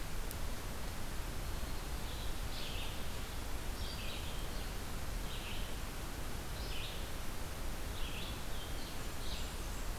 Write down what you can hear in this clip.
Red-eyed Vireo, Blackburnian Warbler